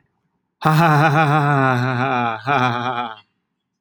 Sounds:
Laughter